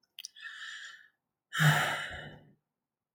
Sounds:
Sigh